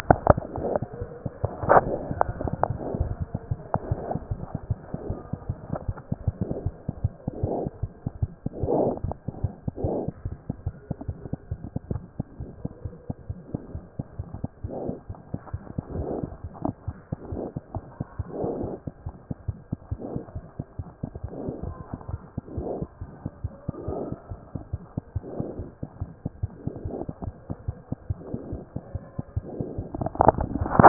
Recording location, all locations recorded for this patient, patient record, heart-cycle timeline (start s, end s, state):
aortic valve (AV)
aortic valve (AV)+mitral valve (MV)
#Age: Infant
#Sex: Female
#Height: 66.0 cm
#Weight: 8.1 kg
#Pregnancy status: False
#Murmur: Unknown
#Murmur locations: nan
#Most audible location: nan
#Systolic murmur timing: nan
#Systolic murmur shape: nan
#Systolic murmur grading: nan
#Systolic murmur pitch: nan
#Systolic murmur quality: nan
#Diastolic murmur timing: nan
#Diastolic murmur shape: nan
#Diastolic murmur grading: nan
#Diastolic murmur pitch: nan
#Diastolic murmur quality: nan
#Outcome: Abnormal
#Campaign: 2014 screening campaign
0.00	18.93	unannotated
18.93	19.06	diastole
19.06	19.14	S1
19.14	19.30	systole
19.30	19.34	S2
19.34	19.48	diastole
19.48	19.58	S1
19.58	19.72	systole
19.72	19.77	S2
19.77	19.92	diastole
19.92	20.00	S1
20.00	20.16	systole
20.16	20.20	S2
20.20	20.36	diastole
20.36	20.44	S1
20.44	20.60	systole
20.60	20.64	S2
20.64	20.80	diastole
20.80	20.88	S1
20.88	21.03	systole
21.03	21.06	S2
21.06	21.24	diastole
21.24	30.88	unannotated